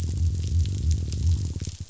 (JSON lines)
{"label": "biophony", "recorder": "SoundTrap 500"}